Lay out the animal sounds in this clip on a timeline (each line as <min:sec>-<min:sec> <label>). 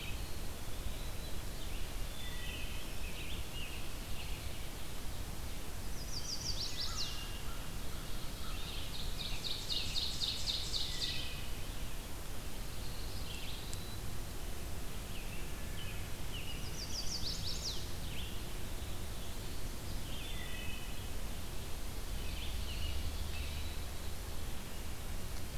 0:00.0-0:01.5 Eastern Wood-Pewee (Contopus virens)
0:01.6-0:25.6 Red-eyed Vireo (Vireo olivaceus)
0:01.9-0:03.5 Wood Thrush (Hylocichla mustelina)
0:05.6-0:07.5 Chestnut-sided Warbler (Setophaga pensylvanica)
0:06.6-0:07.7 Wood Thrush (Hylocichla mustelina)
0:08.4-0:11.6 Ovenbird (Seiurus aurocapilla)
0:10.8-0:11.6 Wood Thrush (Hylocichla mustelina)
0:12.3-0:13.8 Pine Warbler (Setophaga pinus)
0:13.0-0:14.0 Eastern Wood-Pewee (Contopus virens)
0:15.0-0:16.6 American Robin (Turdus migratorius)
0:16.5-0:17.8 Chestnut-sided Warbler (Setophaga pensylvanica)
0:19.8-0:21.2 Wood Thrush (Hylocichla mustelina)
0:21.9-0:23.6 American Robin (Turdus migratorius)